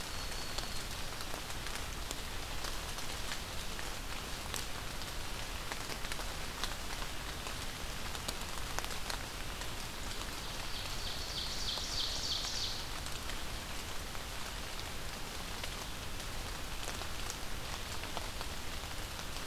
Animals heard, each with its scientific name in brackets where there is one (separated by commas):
Black-throated Green Warbler (Setophaga virens), Ovenbird (Seiurus aurocapilla)